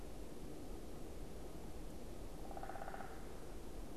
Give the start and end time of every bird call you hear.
2.3s-3.3s: unidentified bird

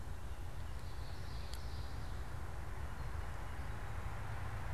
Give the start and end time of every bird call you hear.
0.0s-1.1s: unidentified bird
0.8s-2.1s: Common Yellowthroat (Geothlypis trichas)

